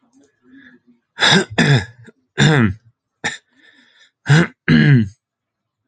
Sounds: Throat clearing